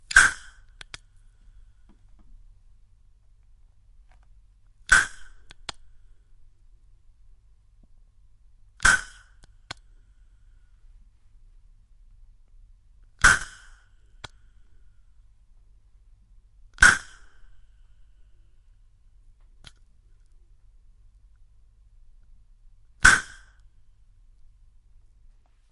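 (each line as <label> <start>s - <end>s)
A loud clacking sound. 0.0s - 0.4s
Click sounds. 0.7s - 1.0s
A loud clacking sound. 4.8s - 5.2s
Click sounds. 5.4s - 5.8s
A loud clacking sound. 8.8s - 9.2s
Click sounds. 9.4s - 9.8s
A loud clacking sound. 13.2s - 13.6s
Click sounds. 14.1s - 14.4s
A loud clacking sound. 16.7s - 17.2s
Click sounds. 19.5s - 19.8s
A loud clacking sound. 23.0s - 23.4s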